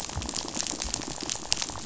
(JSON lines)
{"label": "biophony, rattle", "recorder": "SoundTrap 500"}